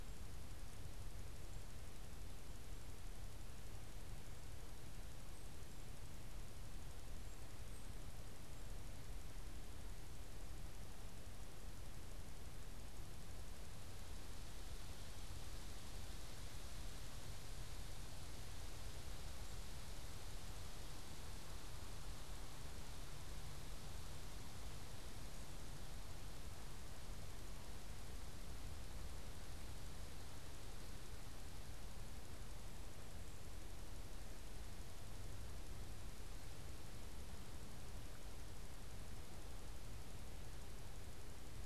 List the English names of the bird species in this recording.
Black-capped Chickadee